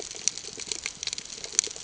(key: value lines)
label: ambient
recorder: HydroMoth